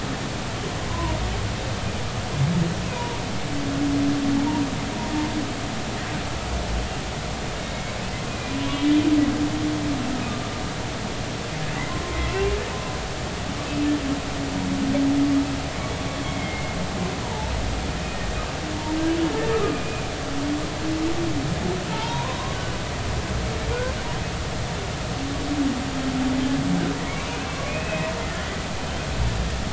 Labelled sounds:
0.9	1.2	humpback whale, 0.90 to 1.1 kHz
2.9	3.2	humpback whale, 0.90 to 1.1 kHz
8.3	9.0	humpback whale, 2.2 to 2.5 kHz
12.0	12.6	humpback whale, 0.99 to 2.8 kHz
16.1	16.8	humpback whale, 2.1 to 3.4 kHz
17.2	17.5	humpback whale, 0.80 to 1.0 kHz
19.5	20.1	humpback whale, 1.2 to 2.5 kHz
21.9	22.4	humpback whale, 0.83 to 1.1 kHz
27.1	28.1	humpback whale, 1.1 to 2.7 kHz

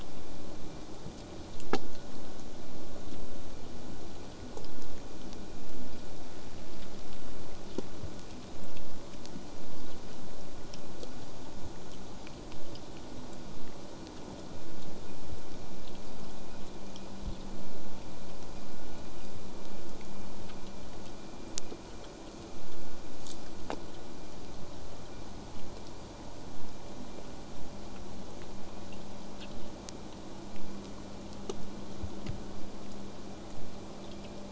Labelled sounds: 29.5	34.5	vessel noise, 0.08 to 8.0 kHz

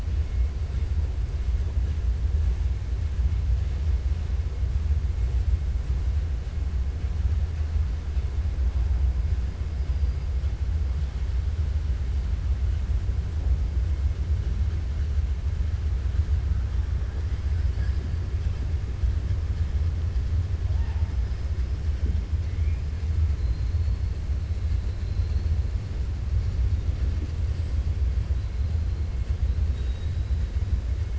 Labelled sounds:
24.6	25.5	killer whale, 3.8 to 4.8 kHz
29.6	30.4	killer whale, 2.8 to 4.1 kHz

